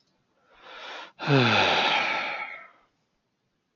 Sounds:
Sigh